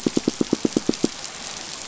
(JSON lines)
{"label": "biophony, pulse", "recorder": "SoundTrap 500"}